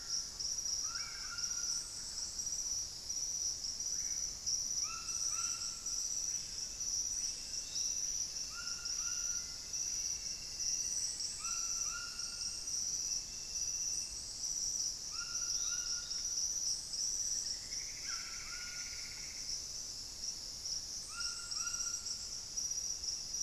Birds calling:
Screaming Piha (Lipaugus vociferans), Plumbeous Antbird (Myrmelastes hyperythrus), Black-faced Antthrush (Formicarius analis), Thrush-like Wren (Campylorhynchus turdinus), White-throated Toucan (Ramphastos tucanus)

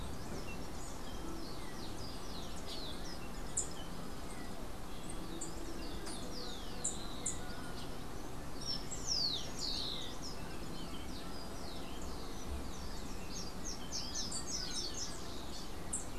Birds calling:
Rufous-collared Sparrow (Zonotrichia capensis), Slate-throated Redstart (Myioborus miniatus)

